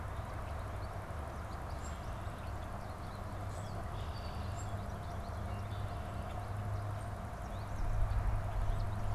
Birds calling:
Common Grackle (Quiscalus quiscula), Red-winged Blackbird (Agelaius phoeniceus), American Goldfinch (Spinus tristis)

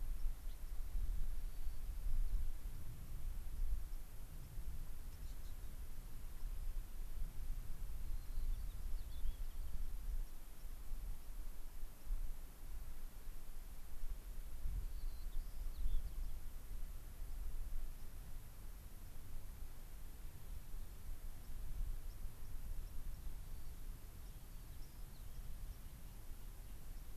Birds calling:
White-crowned Sparrow (Zonotrichia leucophrys), Gray-crowned Rosy-Finch (Leucosticte tephrocotis)

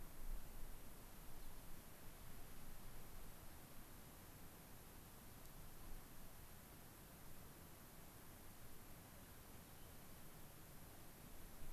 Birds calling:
unidentified bird

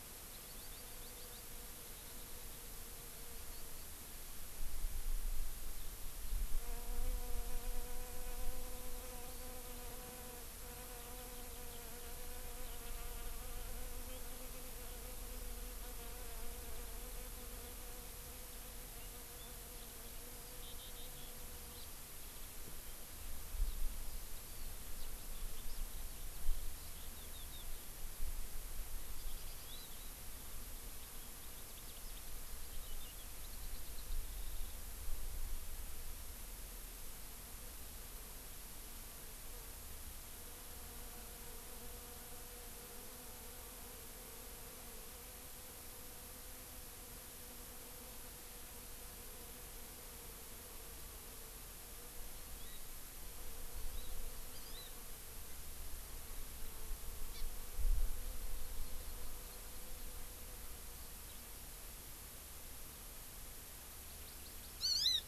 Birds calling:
House Finch (Haemorhous mexicanus), Hawaii Amakihi (Chlorodrepanis virens), Eurasian Skylark (Alauda arvensis)

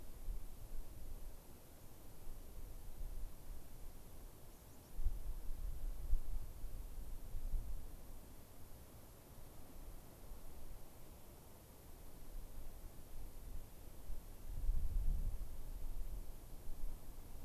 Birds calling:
unidentified bird

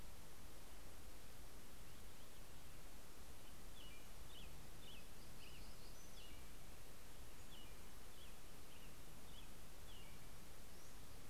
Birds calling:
Purple Finch (Haemorhous purpureus), American Robin (Turdus migratorius), Black-throated Gray Warbler (Setophaga nigrescens), Pacific-slope Flycatcher (Empidonax difficilis)

